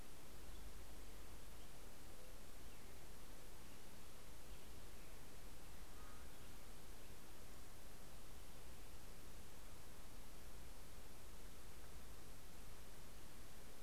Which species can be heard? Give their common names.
Black-headed Grosbeak